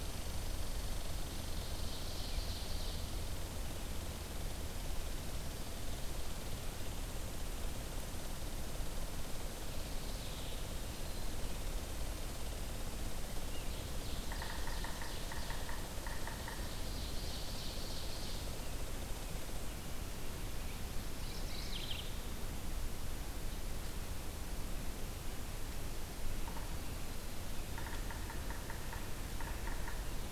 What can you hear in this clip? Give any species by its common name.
Red Squirrel, Ovenbird, Mourning Warbler, Yellow-bellied Sapsucker